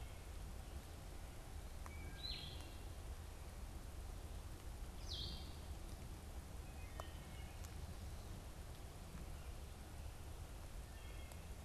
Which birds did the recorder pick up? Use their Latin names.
Vireo solitarius, Hylocichla mustelina